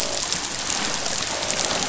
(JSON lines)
{"label": "biophony, croak", "recorder": "SoundTrap 500"}